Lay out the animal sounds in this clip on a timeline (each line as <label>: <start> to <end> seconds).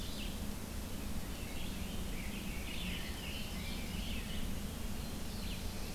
Red-eyed Vireo (Vireo olivaceus): 0.0 to 5.9 seconds
Rose-breasted Grosbeak (Pheucticus ludovicianus): 1.3 to 4.6 seconds
Ovenbird (Seiurus aurocapilla): 2.6 to 4.1 seconds
Black-throated Blue Warbler (Setophaga caerulescens): 4.7 to 5.9 seconds